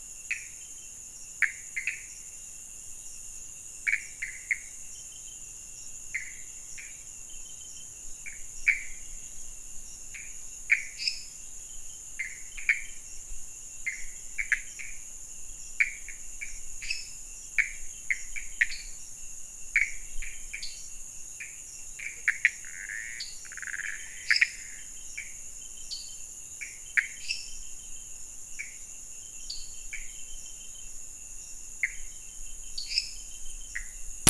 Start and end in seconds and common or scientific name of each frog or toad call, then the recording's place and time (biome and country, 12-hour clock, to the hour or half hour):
0.0	34.0	Pithecopus azureus
10.9	11.7	lesser tree frog
16.4	29.9	dwarf tree frog
16.6	17.3	lesser tree frog
24.1	24.7	lesser tree frog
27.1	27.8	lesser tree frog
32.6	33.3	lesser tree frog
Cerrado, Brazil, 12:30am